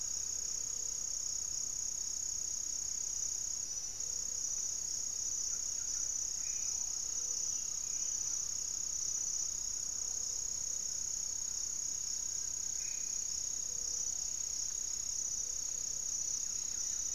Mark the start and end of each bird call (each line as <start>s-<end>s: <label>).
0.0s-17.1s: Gray-fronted Dove (Leptotila rufaxilla)
5.2s-11.8s: Buff-breasted Wren (Cantorchilus leucotis)
6.1s-6.9s: Black-faced Antthrush (Formicarius analis)
12.0s-13.0s: Little Tinamou (Crypturellus soui)
12.5s-13.3s: Black-faced Antthrush (Formicarius analis)
16.2s-17.1s: Buff-breasted Wren (Cantorchilus leucotis)